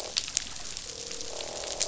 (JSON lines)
{"label": "biophony, croak", "recorder": "SoundTrap 500"}